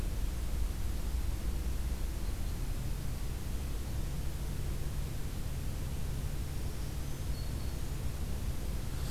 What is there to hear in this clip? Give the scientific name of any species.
Setophaga virens